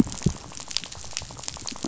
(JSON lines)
{"label": "biophony, rattle", "recorder": "SoundTrap 500"}